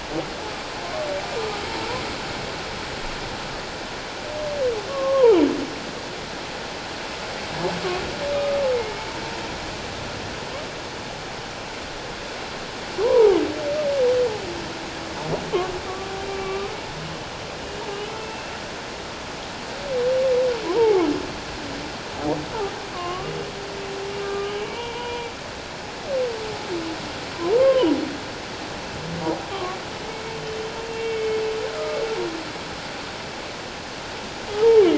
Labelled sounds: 4.9	5.4	humpback whale, 0.78 to 1.2 kHz
8.3	8.6	humpback whale, 1.1 to 1.3 kHz
13.0	13.4	humpback whale, 0.78 to 1.1 kHz
16.3	16.8	humpback whale, 1.1 to 2.4 kHz
17.6	18.3	humpback whale, 2.8 to 3.1 kHz
20.7	21.0	humpback whale, 0.78 to 1.0 kHz
22.9	23.3	humpback whale, 0.97 to 3.0 kHz
24.2	25.3	humpback whale, 0.88 to 3.0 kHz
27.6	27.9	humpback whale, 0.91 to 1.1 kHz
29.5	29.8	humpback whale, 1.0 to 1.2 kHz
30.8	31.4	humpback whale, 2.1 to 3.1 kHz
34.5	34.8	humpback whale, 0.78 to 0.97 kHz

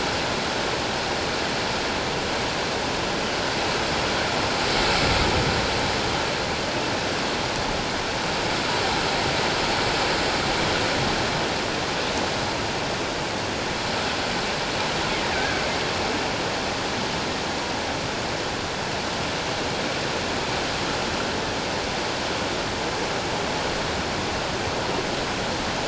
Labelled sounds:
15.3	15.6	killer whale, offshore, 1.4 to 1.7 kHz

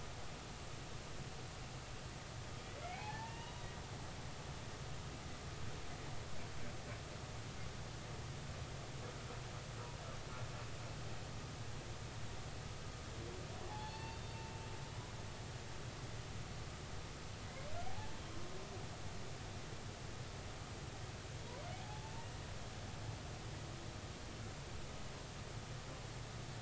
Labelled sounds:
2.8	3.7	humpback whale, 0.80 to 3.9 kHz
13.7	14.4	humpback whale, 0.80 to 4.6 kHz
17.9	18.1	humpback whale, 0.80 to 0.99 kHz
21.7	22.3	humpback whale, 0.80 to 0.99 kHz

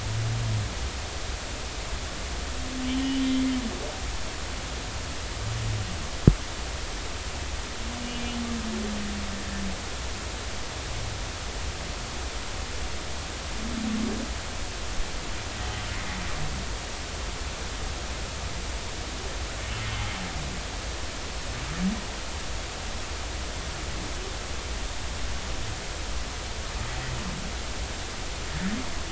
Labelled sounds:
3.2	3.4	humpback whale, 3.1 to 3.5 kHz

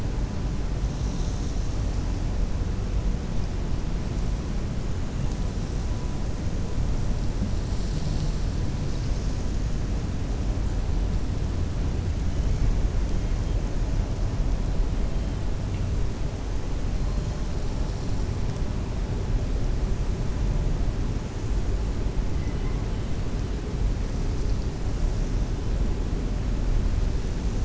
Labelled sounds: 22.3	22.8	killer whale, 1.0 to 3.0 kHz

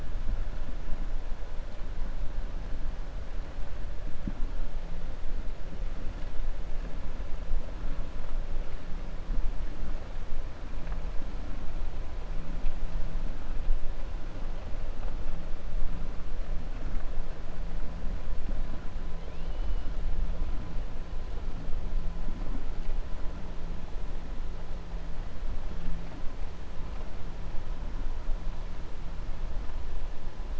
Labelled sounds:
19.2	19.9	killer whale, 2.3 to 3.6 kHz

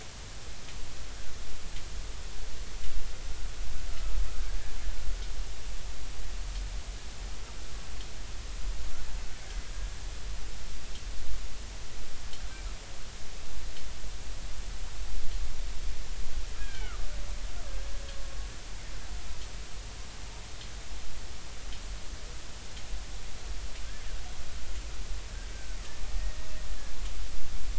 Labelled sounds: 16.6	17.1	killer whale, Bigg's (transient), 1.1 to 3.3 kHz
25.5	25.8	killer whale, Bigg's (transient), 1.5 to 1.6 kHz
26.7	27.0	killer whale, Bigg's (transient), 1.6 to 1.8 kHz

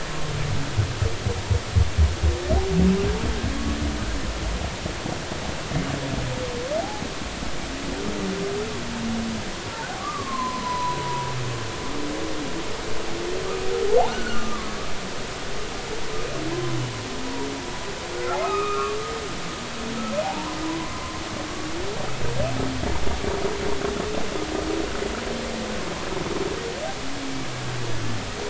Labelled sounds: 10.0	11.3	humpback whale, 0.93 to 1.3 kHz
14.1	14.7	humpback whale, 1.1 to 1.6 kHz
18.4	19.0	humpback whale, 1.1 to 2.6 kHz
20.2	21.2	humpback whale, 0.80 to 1.1 kHz

